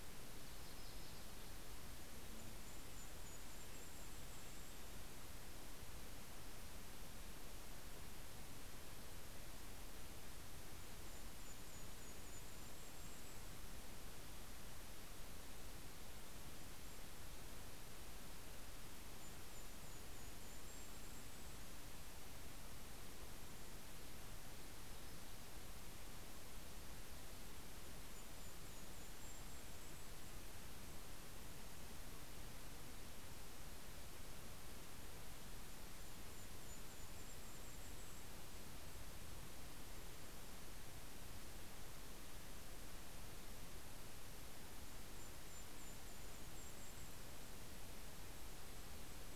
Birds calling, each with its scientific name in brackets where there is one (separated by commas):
Golden-crowned Kinglet (Regulus satrapa), Yellow-rumped Warbler (Setophaga coronata)